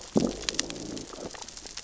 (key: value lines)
label: biophony, growl
recorder: SoundTrap 600 or HydroMoth